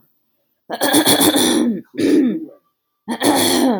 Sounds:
Throat clearing